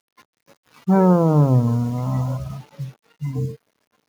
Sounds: Sigh